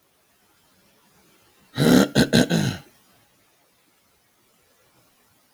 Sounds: Throat clearing